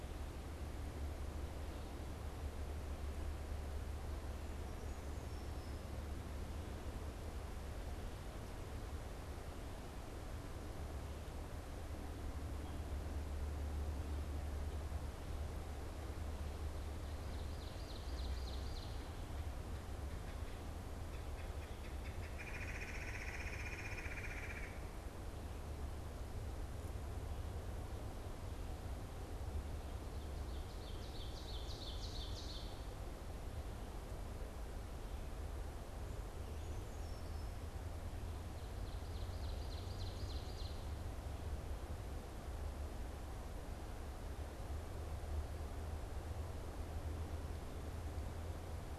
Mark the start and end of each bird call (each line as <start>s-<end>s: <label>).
17.0s-19.1s: Ovenbird (Seiurus aurocapilla)
20.9s-24.9s: Red-bellied Woodpecker (Melanerpes carolinus)
30.0s-32.6s: Ovenbird (Seiurus aurocapilla)
36.4s-37.5s: Brown Creeper (Certhia americana)
38.5s-40.9s: Ovenbird (Seiurus aurocapilla)